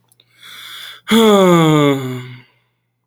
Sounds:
Sigh